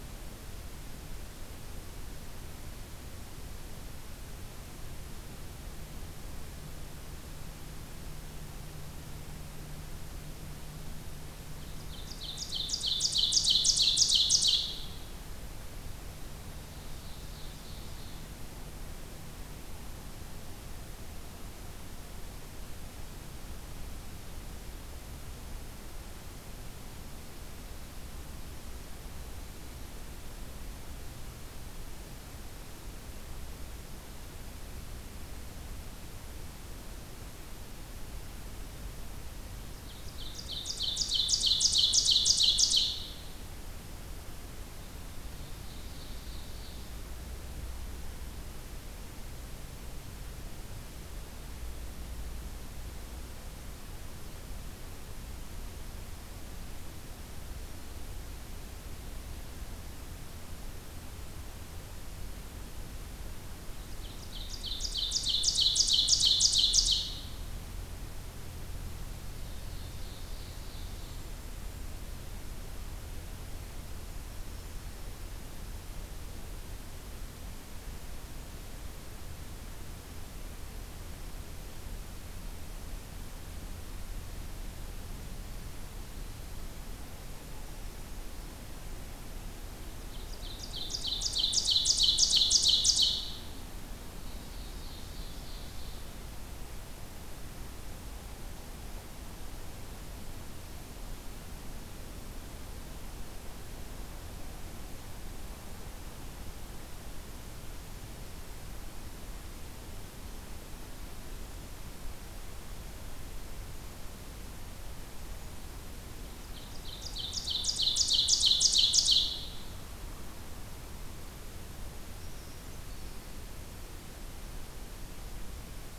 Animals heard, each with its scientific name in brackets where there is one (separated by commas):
Ovenbird (Seiurus aurocapilla), Brown Creeper (Certhia americana), Golden-crowned Kinglet (Regulus satrapa)